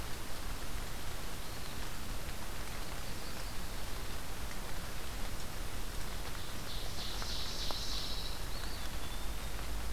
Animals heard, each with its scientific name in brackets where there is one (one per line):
Eastern Wood-Pewee (Contopus virens)
Ovenbird (Seiurus aurocapilla)